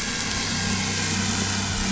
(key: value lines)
label: anthrophony, boat engine
recorder: SoundTrap 500